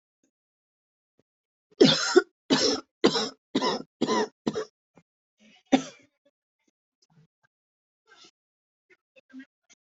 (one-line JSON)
{"expert_labels": [{"quality": "good", "cough_type": "dry", "dyspnea": false, "wheezing": false, "stridor": false, "choking": false, "congestion": false, "nothing": true, "diagnosis": "upper respiratory tract infection", "severity": "mild"}], "age": 44, "gender": "female", "respiratory_condition": false, "fever_muscle_pain": false, "status": "symptomatic"}